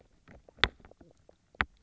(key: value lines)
label: biophony, knock croak
recorder: SoundTrap 300